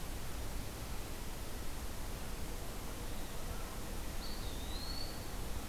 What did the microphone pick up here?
Eastern Wood-Pewee